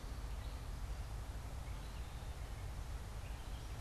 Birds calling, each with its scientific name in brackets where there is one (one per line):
Gray Catbird (Dumetella carolinensis)